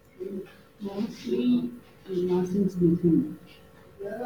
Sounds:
Sniff